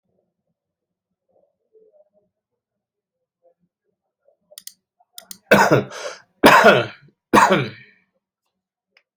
{"expert_labels": [{"quality": "good", "cough_type": "dry", "dyspnea": false, "wheezing": false, "stridor": false, "choking": false, "congestion": false, "nothing": true, "diagnosis": "healthy cough", "severity": "pseudocough/healthy cough"}], "age": 49, "gender": "male", "respiratory_condition": false, "fever_muscle_pain": false, "status": "COVID-19"}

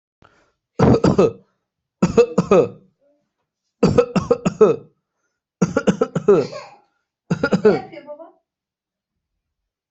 {"expert_labels": [{"quality": "good", "cough_type": "dry", "dyspnea": false, "wheezing": false, "stridor": false, "choking": false, "congestion": false, "nothing": true, "diagnosis": "upper respiratory tract infection", "severity": "mild"}], "age": 32, "gender": "male", "respiratory_condition": false, "fever_muscle_pain": true, "status": "symptomatic"}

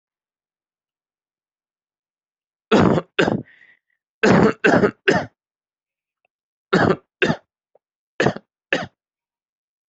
{"expert_labels": [{"quality": "poor", "cough_type": "unknown", "dyspnea": false, "wheezing": false, "stridor": false, "choking": false, "congestion": false, "nothing": true, "diagnosis": "lower respiratory tract infection", "severity": "mild"}]}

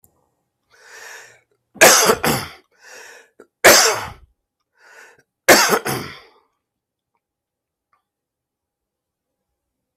{"expert_labels": [{"quality": "ok", "cough_type": "dry", "dyspnea": false, "wheezing": false, "stridor": false, "choking": false, "congestion": false, "nothing": true, "diagnosis": "healthy cough", "severity": "pseudocough/healthy cough"}], "age": 45, "gender": "male", "respiratory_condition": false, "fever_muscle_pain": false, "status": "healthy"}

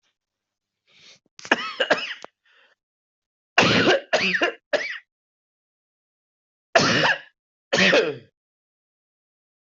{"expert_labels": [{"quality": "good", "cough_type": "dry", "dyspnea": false, "wheezing": true, "stridor": false, "choking": false, "congestion": false, "nothing": false, "diagnosis": "obstructive lung disease", "severity": "mild"}], "gender": "female", "respiratory_condition": false, "fever_muscle_pain": false, "status": "symptomatic"}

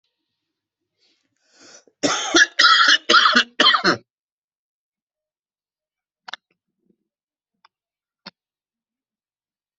{"expert_labels": [{"quality": "good", "cough_type": "dry", "dyspnea": false, "wheezing": true, "stridor": false, "choking": false, "congestion": false, "nothing": true, "diagnosis": "obstructive lung disease", "severity": "mild"}], "age": 46, "gender": "male", "respiratory_condition": false, "fever_muscle_pain": true, "status": "healthy"}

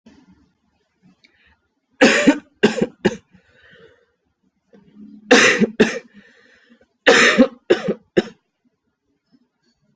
{"expert_labels": [{"quality": "ok", "cough_type": "dry", "dyspnea": false, "wheezing": false, "stridor": false, "choking": false, "congestion": false, "nothing": true, "diagnosis": "lower respiratory tract infection", "severity": "mild"}, {"quality": "ok", "cough_type": "dry", "dyspnea": false, "wheezing": false, "stridor": false, "choking": false, "congestion": false, "nothing": true, "diagnosis": "upper respiratory tract infection", "severity": "mild"}, {"quality": "good", "cough_type": "dry", "dyspnea": false, "wheezing": false, "stridor": false, "choking": false, "congestion": false, "nothing": true, "diagnosis": "upper respiratory tract infection", "severity": "mild"}, {"quality": "good", "cough_type": "wet", "dyspnea": false, "wheezing": false, "stridor": false, "choking": false, "congestion": false, "nothing": true, "diagnosis": "lower respiratory tract infection", "severity": "mild"}], "age": 23, "gender": "male", "respiratory_condition": false, "fever_muscle_pain": false, "status": "symptomatic"}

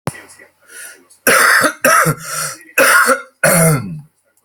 {"expert_labels": [{"quality": "ok", "cough_type": "dry", "dyspnea": false, "wheezing": false, "stridor": false, "choking": false, "congestion": false, "nothing": true, "diagnosis": "healthy cough", "severity": "pseudocough/healthy cough"}], "age": 68, "gender": "male", "respiratory_condition": true, "fever_muscle_pain": false, "status": "COVID-19"}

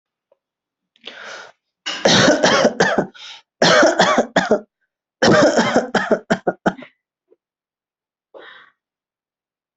{"expert_labels": [{"quality": "good", "cough_type": "dry", "dyspnea": true, "wheezing": false, "stridor": false, "choking": false, "congestion": false, "nothing": false, "diagnosis": "COVID-19", "severity": "severe"}], "age": 29, "gender": "male", "respiratory_condition": false, "fever_muscle_pain": false, "status": "healthy"}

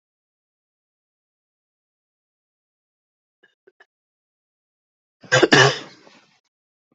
{"expert_labels": [{"quality": "good", "cough_type": "dry", "dyspnea": false, "wheezing": false, "stridor": false, "choking": false, "congestion": false, "nothing": true, "diagnosis": "upper respiratory tract infection", "severity": "unknown"}], "age": 35, "gender": "male", "respiratory_condition": false, "fever_muscle_pain": false, "status": "healthy"}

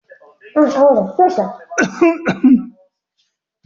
{"expert_labels": [{"quality": "good", "cough_type": "wet", "dyspnea": false, "wheezing": false, "stridor": false, "choking": false, "congestion": false, "nothing": true, "diagnosis": "upper respiratory tract infection", "severity": "mild"}]}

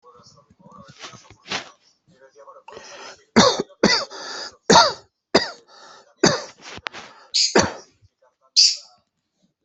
{"expert_labels": [{"quality": "ok", "cough_type": "dry", "dyspnea": false, "wheezing": false, "stridor": false, "choking": false, "congestion": false, "nothing": true, "diagnosis": "obstructive lung disease", "severity": "mild"}], "age": 51, "gender": "female", "respiratory_condition": false, "fever_muscle_pain": false, "status": "COVID-19"}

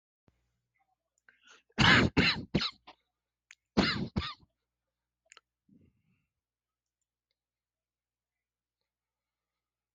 {"expert_labels": [{"quality": "good", "cough_type": "dry", "dyspnea": false, "wheezing": false, "stridor": false, "choking": false, "congestion": false, "nothing": true, "diagnosis": "upper respiratory tract infection", "severity": "mild"}], "age": 30, "gender": "male", "respiratory_condition": false, "fever_muscle_pain": false, "status": "symptomatic"}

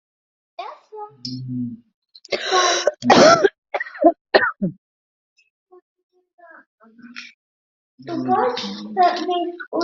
{"expert_labels": [{"quality": "ok", "cough_type": "unknown", "dyspnea": false, "wheezing": false, "stridor": false, "choking": false, "congestion": false, "nothing": true, "diagnosis": "lower respiratory tract infection", "severity": "mild"}], "age": 40, "gender": "female", "respiratory_condition": false, "fever_muscle_pain": false, "status": "COVID-19"}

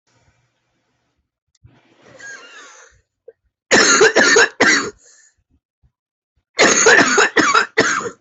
{"expert_labels": [{"quality": "good", "cough_type": "wet", "dyspnea": true, "wheezing": false, "stridor": true, "choking": false, "congestion": false, "nothing": false, "diagnosis": "obstructive lung disease", "severity": "severe"}], "age": 31, "gender": "female", "respiratory_condition": false, "fever_muscle_pain": false, "status": "symptomatic"}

